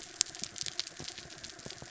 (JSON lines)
{"label": "anthrophony, mechanical", "recorder": "SoundTrap 300"}